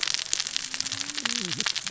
{"label": "biophony, cascading saw", "recorder": "SoundTrap 600 or HydroMoth"}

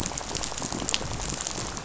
{"label": "biophony, rattle", "recorder": "SoundTrap 500"}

